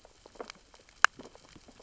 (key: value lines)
label: biophony, sea urchins (Echinidae)
recorder: SoundTrap 600 or HydroMoth